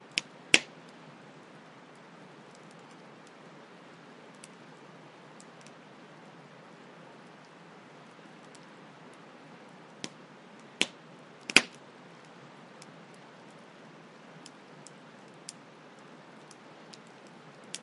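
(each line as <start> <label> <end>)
0.0 Loud crackling fire. 0.7
0.0 Quiet crackling of a fire that occasionally grows louder. 17.8
0.0 Continuous noise in the background, possibly from flowing water or falling rain. 17.8
9.9 Loud crackling fire. 11.8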